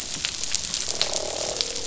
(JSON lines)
{"label": "biophony, croak", "recorder": "SoundTrap 500"}